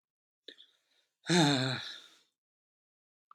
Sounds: Sigh